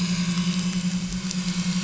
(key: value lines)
label: anthrophony, boat engine
recorder: SoundTrap 500